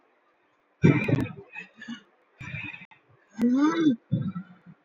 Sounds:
Sigh